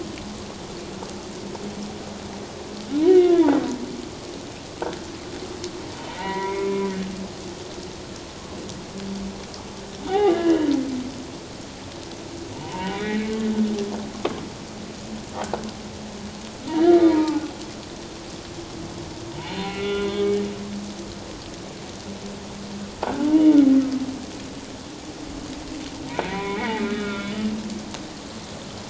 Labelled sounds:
3.0	3.6	humpback whale, 0.81 to 3.6 kHz
6.1	6.7	humpback whale, 0.88 to 2.4 kHz
10.1	10.7	humpback whale, 0.78 to 3.9 kHz
12.5	13.4	humpback whale, 0.88 to 2.4 kHz
16.7	17.4	humpback whale, 0.81 to 3.2 kHz
19.5	20.4	humpback whale, 1.3 to 4.3 kHz
23.2	23.6	humpback whale, 0.81 to 0.97 kHz
26.1	27.3	humpback whale, 0.88 to 2.7 kHz

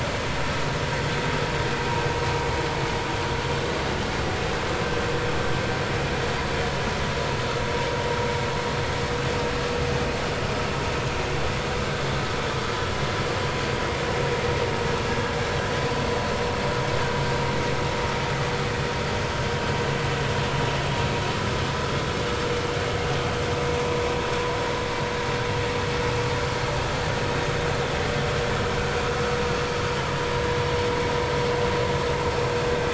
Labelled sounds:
12.7	13.0	vessel noise, 1.6 to 1.8 kHz

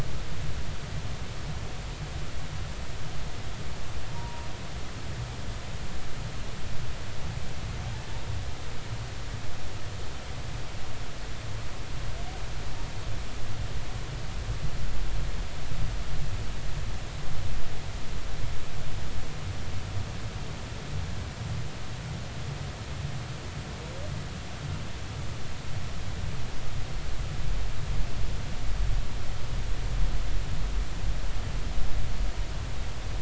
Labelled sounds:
4.2	4.5	humpback whale, 0.90 to 1.1 kHz

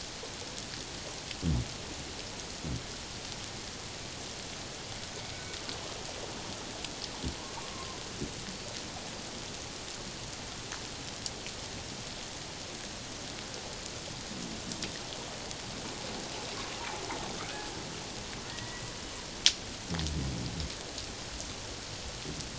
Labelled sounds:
7.4	8.0	killer whale, Bigg's (transient), 0.94 to 1.2 kHz
18.5	18.9	killer whale, Bigg's (transient), 1.8 to 2.0 kHz

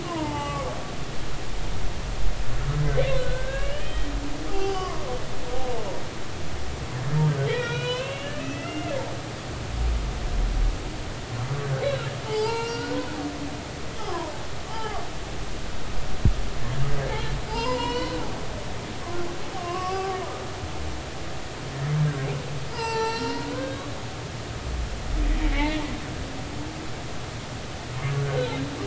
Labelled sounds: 0.0	0.7	humpback whale, 0.80 to 3.0 kHz
3.2	5.0	humpback whale, 0.80 to 4.8 kHz
7.5	9.0	humpback whale, 0.96 to 4.2 kHz
11.8	13.1	humpback whale, 0.80 to 5.1 kHz
14.0	15.0	humpback whale, 0.80 to 1.4 kHz
17.5	18.2	humpback whale, 0.83 to 5.5 kHz
19.6	20.2	humpback whale, 0.80 to 1.2 kHz
22.7	23.8	humpback whale, 0.83 to 6.0 kHz
25.4	25.8	humpback whale, 1.9 to 2.3 kHz
28.2	28.5	humpback whale, 1.4 to 1.6 kHz

